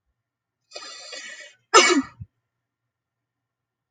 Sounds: Sneeze